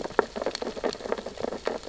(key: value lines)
label: biophony, sea urchins (Echinidae)
recorder: SoundTrap 600 or HydroMoth